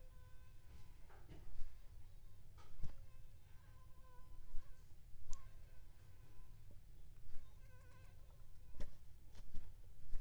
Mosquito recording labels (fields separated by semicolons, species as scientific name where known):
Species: Aedes aegypti; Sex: female; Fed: unfed; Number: one; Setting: cup